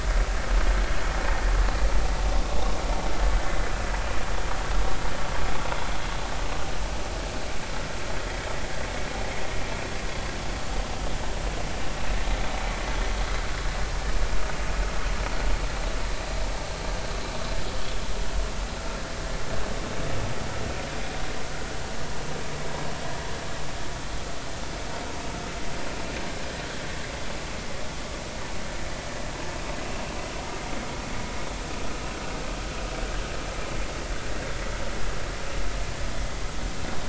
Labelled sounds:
31.8	32.1	vessel noise, 1.2 to 1.5 kHz

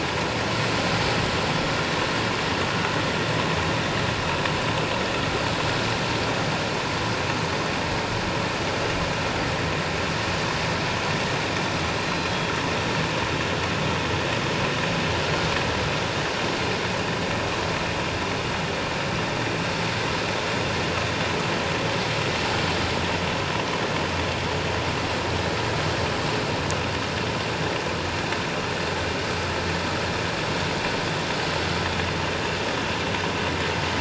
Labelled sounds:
11.9	12.3	killer whale, northern resident, G clan, 4.0 to 4.2 kHz

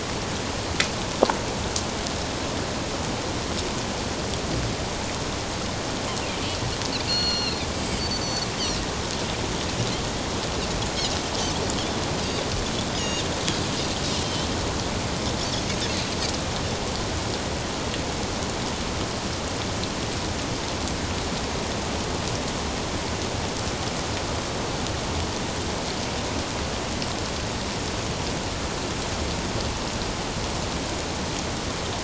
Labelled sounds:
7.1	8.5	Pacific white-sided dolphin, 1.4 to 5.8 kHz
13.0	13.2	Pacific white-sided dolphin, 2.8 to 7.0 kHz

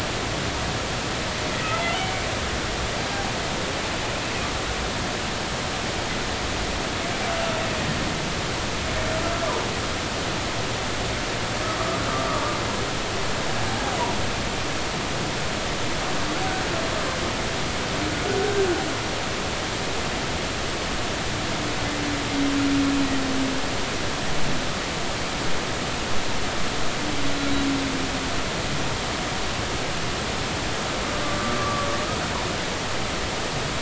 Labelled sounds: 3.0	3.3	humpback whale, 2.1 to 2.4 kHz
13.7	14.0	humpback whale, 0.80 to 0.90 kHz
18.4	18.7	humpback whale, 1.5 to 1.6 kHz
31.2	31.9	humpback whale, 1.1 to 1.2 kHz

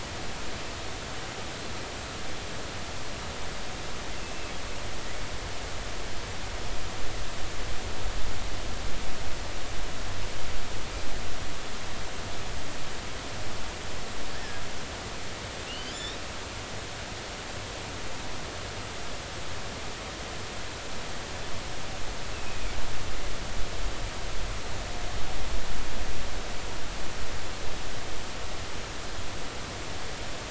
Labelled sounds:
14.3	14.6	killer whale, offshore, 1.6 to 1.9 kHz
15.7	16.2	killer whale, offshore, 2.7 to 3.8 kHz
22.3	22.6	killer whale, offshore, 2.5 to 2.8 kHz

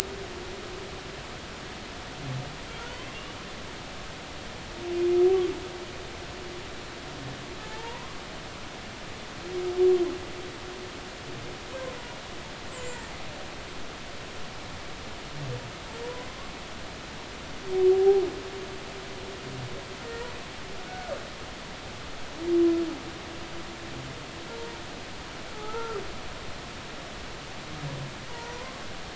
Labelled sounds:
2.9	3.4	humpback whale, 2.6 to 3.4 kHz
7.6	8.2	humpback whale, 0.83 to 1.2 kHz
12.7	13.0	humpback whale, 6.8 to 7.9 kHz
17.9	18.2	humpback whale, 0.80 to 0.86 kHz
20.9	21.1	humpback whale, 1.4 to 1.5 kHz
24.5	24.8	humpback whale, 0.90 to 0.99 kHz
25.5	26.0	humpback whale, 0.80 to 1.4 kHz
28.3	28.5	humpback whale, 0.90 to 1.0 kHz

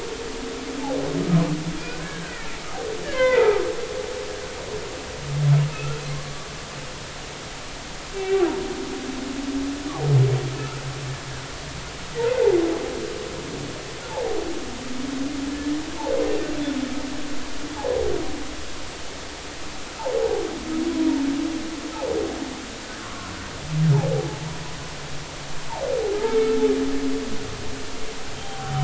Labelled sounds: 1.8	3.6	humpback whale, 0.80 to 3.6 kHz
5.7	6.5	humpback whale, 1.0 to 1.5 kHz
8.1	8.4	humpback whale, 2.2 to 2.8 kHz
14.1	14.4	humpback whale, 0.80 to 0.96 kHz
15.5	15.8	humpback whale, 1.7 to 1.9 kHz
23.0	24.4	humpback whale, 0.80 to 1.2 kHz
28.4	28.8	humpback whale, 0.80 to 0.83 kHz

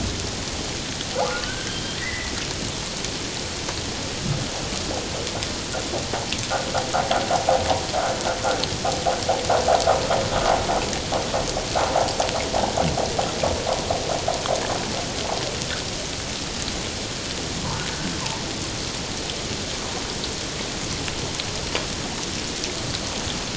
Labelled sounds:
1.3	2.3	humpback whale, 1.3 to 3.3 kHz

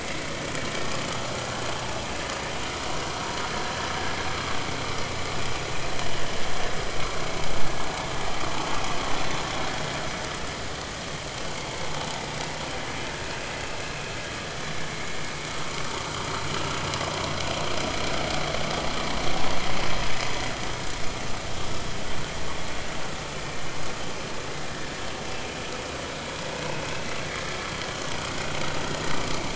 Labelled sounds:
13.6	13.9	vessel noise, 2.5 to 2.8 kHz
14.9	15.2	vessel noise, 2.1 to 2.3 kHz
26.6	26.8	vessel noise, 2.5 to 2.6 kHz
28.8	29.1	vessel noise, 1.8 to 1.9 kHz

